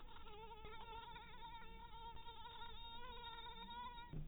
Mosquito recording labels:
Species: mosquito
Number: one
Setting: cup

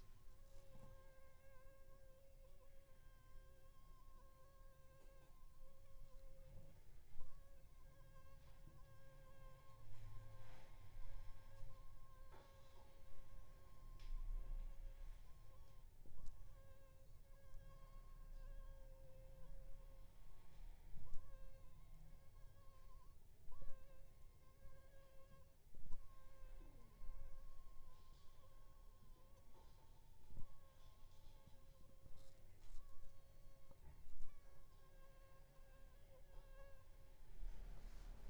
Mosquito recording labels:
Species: Anopheles funestus s.s.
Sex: female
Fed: unfed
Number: one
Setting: cup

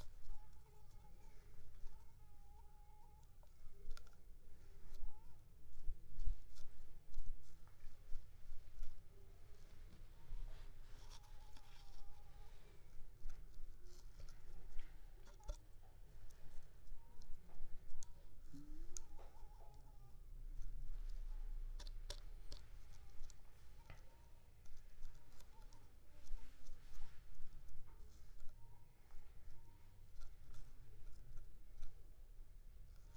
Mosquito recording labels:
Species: Culex pipiens complex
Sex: female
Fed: unfed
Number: one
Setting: cup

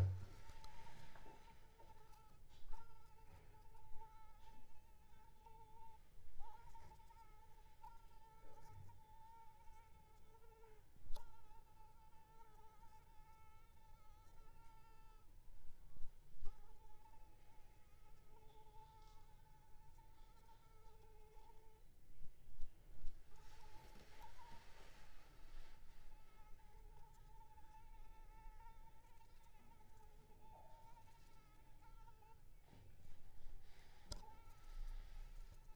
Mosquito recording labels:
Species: Anopheles arabiensis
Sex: female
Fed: unfed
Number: one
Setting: cup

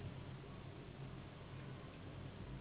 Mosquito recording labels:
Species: Anopheles gambiae s.s.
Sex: female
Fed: unfed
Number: one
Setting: insect culture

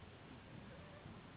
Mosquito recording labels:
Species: Anopheles gambiae s.s.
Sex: female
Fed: unfed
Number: one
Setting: insect culture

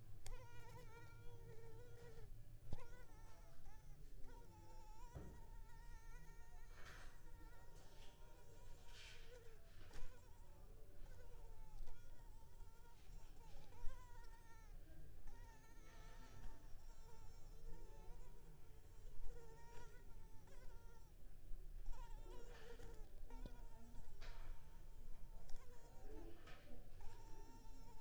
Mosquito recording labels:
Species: Culex pipiens complex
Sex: female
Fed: unfed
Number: one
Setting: cup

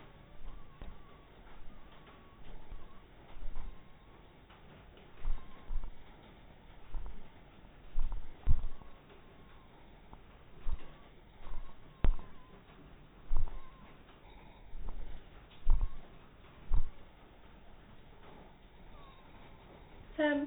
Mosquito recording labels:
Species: mosquito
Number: one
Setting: cup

